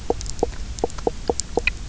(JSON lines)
{"label": "biophony, knock croak", "recorder": "SoundTrap 300"}